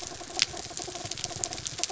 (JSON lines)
{"label": "anthrophony, mechanical", "recorder": "SoundTrap 300"}